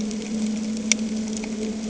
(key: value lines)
label: anthrophony, boat engine
recorder: HydroMoth